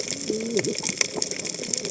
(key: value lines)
label: biophony, cascading saw
recorder: HydroMoth